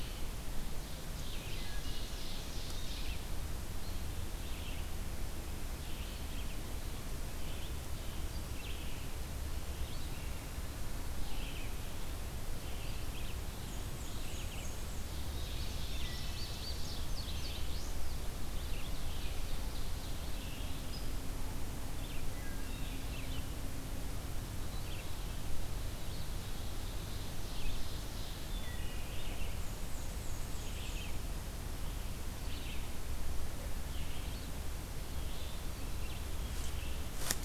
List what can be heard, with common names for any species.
Red-eyed Vireo, Ovenbird, Wood Thrush, Black-and-white Warbler, Indigo Bunting